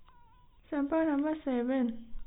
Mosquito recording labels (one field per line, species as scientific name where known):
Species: no mosquito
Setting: cup